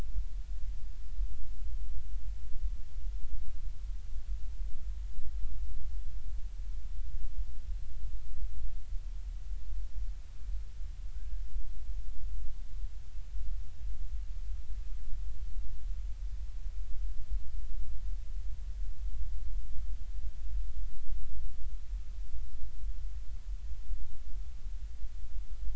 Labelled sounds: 11.2	11.4	killer whale, northern resident, 1.4 to 1.7 kHz

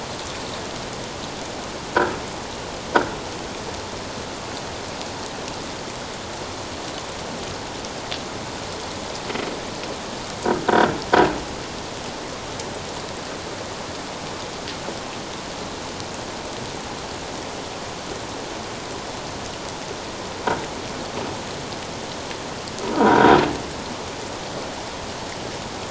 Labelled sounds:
22.9	23.3	croaking sound likely from a nearby submerged object, 1.3 to 1.7 kHz

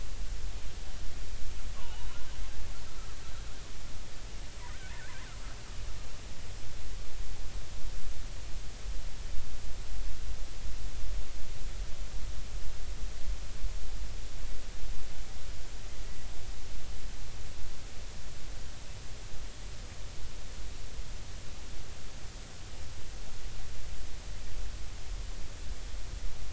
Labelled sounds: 1.8	2.1	killer whale, Bigg's (transient), 0.80 to 3.0 kHz

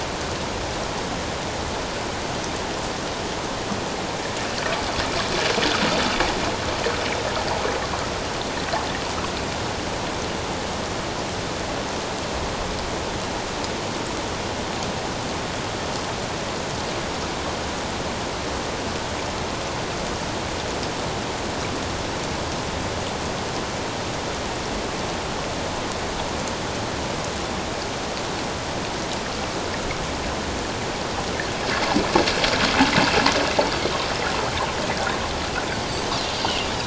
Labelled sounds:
35.9	36.1	Pacific white-sided dolphin, 6.1 to 6.3 kHz

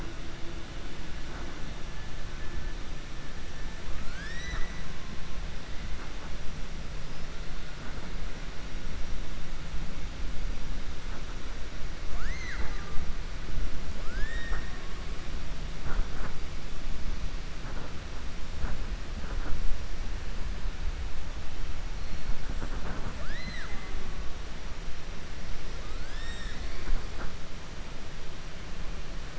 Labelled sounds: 3.9	4.8	killer whale, 0.65 to 7.9 kHz
13.9	14.8	killer whale, 0.46 to 7.9 kHz
25.9	26.9	killer whale, 1.6 to 7.9 kHz

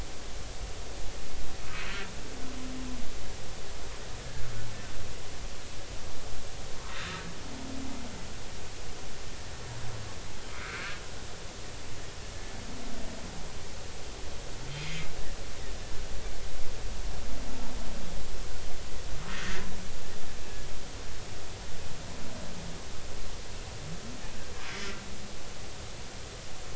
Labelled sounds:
10.6	11.0	humpback whale, 1.2 to 1.8 kHz
19.3	19.7	humpback whale, 1.7 to 2.1 kHz
24.7	25.0	humpback whale, 1.9 to 2.1 kHz

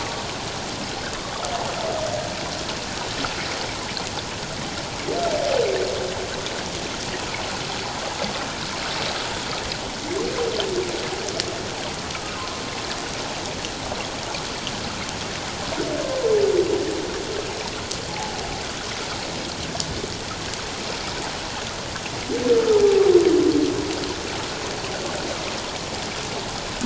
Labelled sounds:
12.1	12.4	humpback whale, 1.2 to 1.4 kHz
18.1	18.4	humpback whale, 0.78 to 0.91 kHz

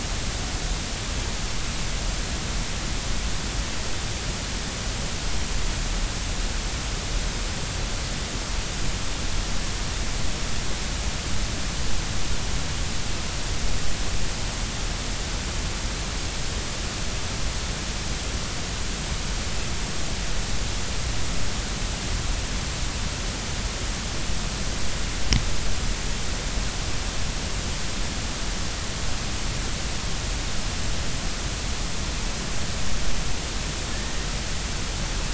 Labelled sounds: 33.9	34.2	killer whale, 1.7 to 1.9 kHz

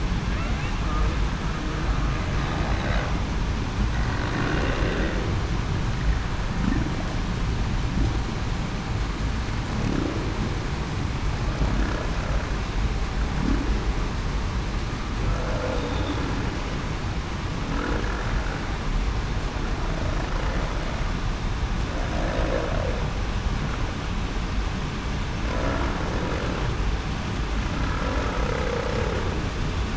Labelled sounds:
2.7	3.0	humpback whale, 3.7 to 4.1 kHz
15.4	15.8	humpback whale, 0.47 to 0.56 kHz
28.4	28.9	humpback whale, 0.45 to 0.54 kHz

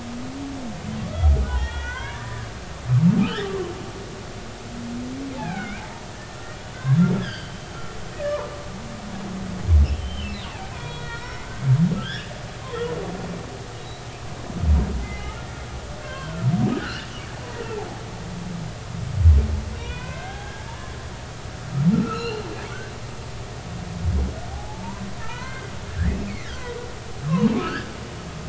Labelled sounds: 1.5	2.5	humpback whale, 0.80 to 3.5 kHz
5.3	6.4	humpback whale, 0.80 to 2.7 kHz
6.7	7.6	humpback whale, 1.5 to 5.1 kHz
8.1	8.5	humpback whale, 0.86 to 2.0 kHz
10.0	10.4	humpback whale, 2.5 to 3.2 kHz
10.7	12.3	humpback whale, 0.90 to 3.9 kHz
14.8	16.5	humpback whale, 0.99 to 4.0 kHz
16.8	17.1	humpback whale, 2.6 to 3.0 kHz
17.8	18.1	humpback whale, 1.3 to 1.8 kHz
19.7	21.3	humpback whale, 0.80 to 3.1 kHz
21.9	22.4	humpback whale, 1.2 to 4.3 kHz
24.5	26.7	humpback whale, 0.80 to 4.5 kHz
27.2	27.9	humpback whale, 0.90 to 1.8 kHz

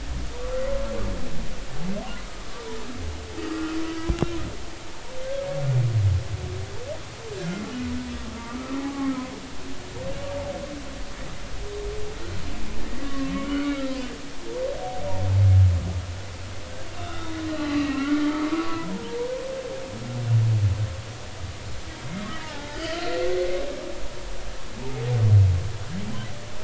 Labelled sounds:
3.8	4.4	humpback whale, 1.2 to 2.8 kHz
8.3	9.1	humpback whale, 0.80 to 1.3 kHz
13.0	14.0	humpback whale, 1.0 to 1.5 kHz
17.0	18.2	humpback whale, 1.0 to 4.2 kHz
18.5	19.2	humpback whale, 0.83 to 1.2 kHz
22.4	23.3	humpback whale, 0.80 to 4.2 kHz

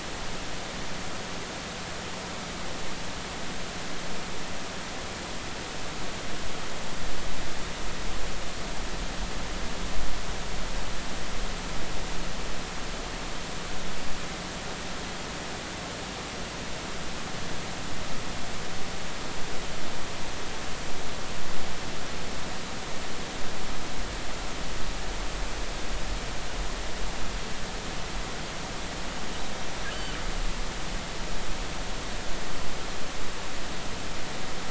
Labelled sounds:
29.9	30.2	killer whale, northern resident, G clan, call N23i, 2.8 to 3.1 kHz

